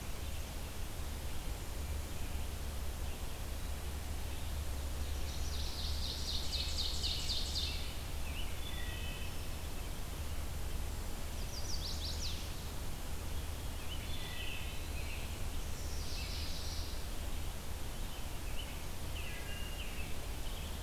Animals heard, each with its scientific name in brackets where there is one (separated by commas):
Wood Thrush (Hylocichla mustelina), American Robin (Turdus migratorius), Black-capped Chickadee (Poecile atricapillus), Eastern Wood-Pewee (Contopus virens), Chestnut-sided Warbler (Setophaga pensylvanica), Ovenbird (Seiurus aurocapilla), Blackburnian Warbler (Setophaga fusca)